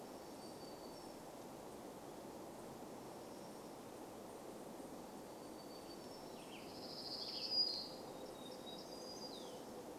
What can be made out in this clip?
warbler song, unidentified sound, Western Tanager song